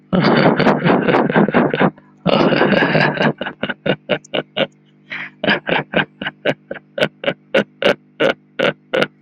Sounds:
Laughter